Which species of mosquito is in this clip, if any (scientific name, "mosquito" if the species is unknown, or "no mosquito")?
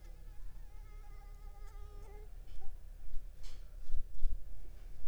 Anopheles arabiensis